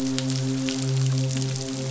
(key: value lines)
label: biophony, midshipman
recorder: SoundTrap 500